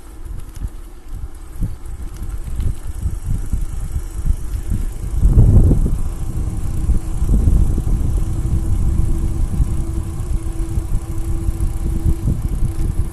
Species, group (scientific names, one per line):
Neotibicen canicularis
Cicadidae